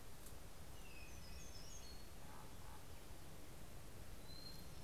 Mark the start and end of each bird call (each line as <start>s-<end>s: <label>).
0.0s-4.8s: Hermit Thrush (Catharus guttatus)
0.6s-2.3s: Hermit Warbler (Setophaga occidentalis)
1.7s-3.9s: Common Raven (Corvus corax)